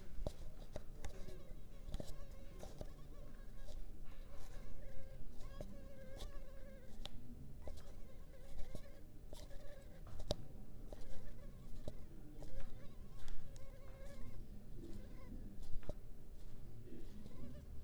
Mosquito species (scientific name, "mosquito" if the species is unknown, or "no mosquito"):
Culex pipiens complex